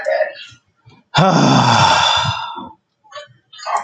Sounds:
Sigh